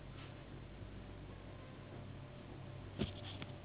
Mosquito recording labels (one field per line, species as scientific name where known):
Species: Anopheles gambiae s.s.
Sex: female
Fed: unfed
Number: one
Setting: insect culture